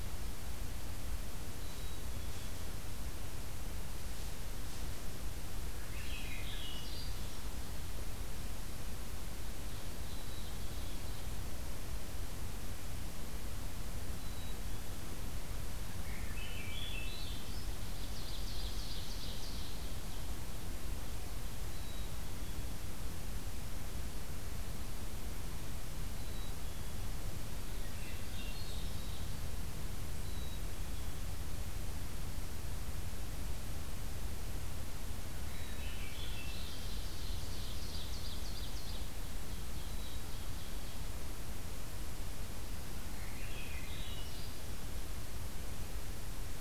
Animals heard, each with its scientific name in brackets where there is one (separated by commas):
Black-capped Chickadee (Poecile atricapillus), Ovenbird (Seiurus aurocapilla), Swainson's Thrush (Catharus ustulatus)